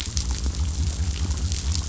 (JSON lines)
{"label": "biophony", "recorder": "SoundTrap 500"}